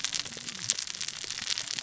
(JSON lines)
{"label": "biophony, cascading saw", "recorder": "SoundTrap 600 or HydroMoth"}